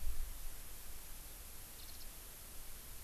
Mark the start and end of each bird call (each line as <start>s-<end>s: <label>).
1.8s-2.1s: Warbling White-eye (Zosterops japonicus)